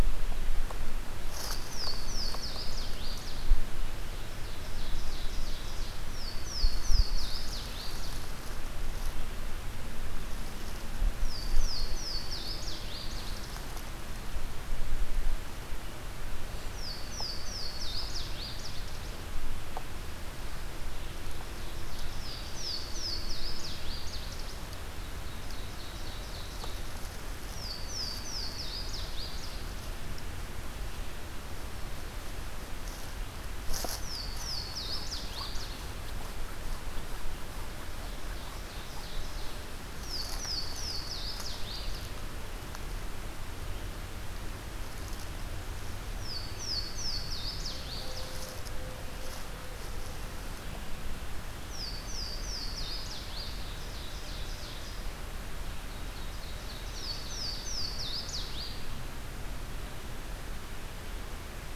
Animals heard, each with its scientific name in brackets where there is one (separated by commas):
Louisiana Waterthrush (Parkesia motacilla), Ovenbird (Seiurus aurocapilla)